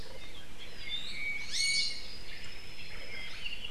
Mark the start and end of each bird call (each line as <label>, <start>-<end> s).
Apapane (Himatione sanguinea), 0.8-2.2 s
Iiwi (Drepanis coccinea), 1.5-2.1 s